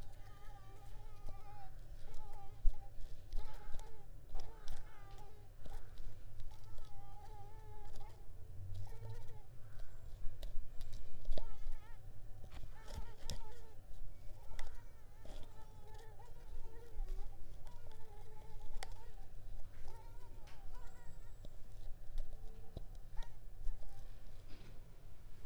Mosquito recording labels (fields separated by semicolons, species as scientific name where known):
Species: Mansonia uniformis; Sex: female; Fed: unfed; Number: one; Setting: cup